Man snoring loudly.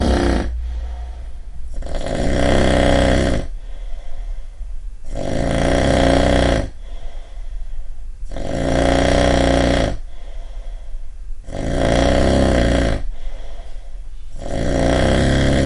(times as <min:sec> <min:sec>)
0:00.0 0:00.5, 0:01.8 0:03.5, 0:05.1 0:06.7, 0:08.2 0:10.0, 0:11.5 0:13.1, 0:14.4 0:15.7